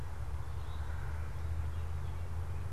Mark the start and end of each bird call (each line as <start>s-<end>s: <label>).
0.0s-2.7s: American Robin (Turdus migratorius)
0.5s-1.1s: Eastern Towhee (Pipilo erythrophthalmus)